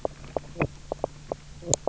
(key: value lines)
label: biophony, knock croak
recorder: SoundTrap 300